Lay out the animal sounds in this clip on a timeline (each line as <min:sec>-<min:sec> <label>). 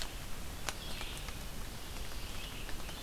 0:00.0-0:03.0 Red-eyed Vireo (Vireo olivaceus)